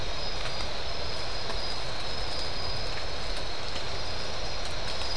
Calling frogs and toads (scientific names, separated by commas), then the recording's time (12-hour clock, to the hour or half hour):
none
2:30am